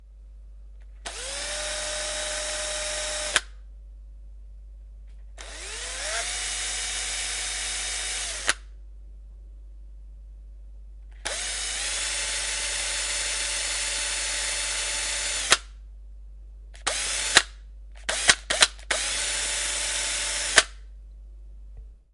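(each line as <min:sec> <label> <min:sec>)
0:01.0 A drill is operating. 0:03.4
0:05.3 A drill is operating. 0:08.6
0:11.2 A drill is operating. 0:15.6
0:16.8 A drill is operating. 0:17.5
0:18.0 A drill turns on and off repeatedly. 0:20.8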